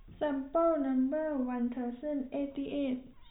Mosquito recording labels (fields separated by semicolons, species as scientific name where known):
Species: no mosquito; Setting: cup